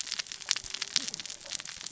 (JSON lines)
{"label": "biophony, cascading saw", "recorder": "SoundTrap 600 or HydroMoth"}